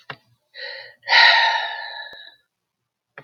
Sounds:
Sigh